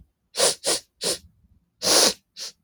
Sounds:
Sniff